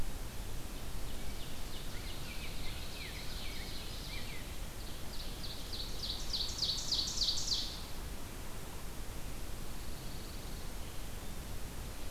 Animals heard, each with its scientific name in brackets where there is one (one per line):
Rose-breasted Grosbeak (Pheucticus ludovicianus)
Pine Warbler (Setophaga pinus)
Ovenbird (Seiurus aurocapilla)